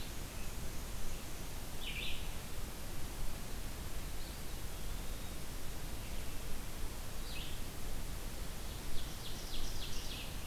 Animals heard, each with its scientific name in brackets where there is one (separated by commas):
Eastern Wood-Pewee (Contopus virens), Black-and-white Warbler (Mniotilta varia), Ovenbird (Seiurus aurocapilla), Red-eyed Vireo (Vireo olivaceus)